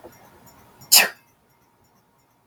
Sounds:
Sneeze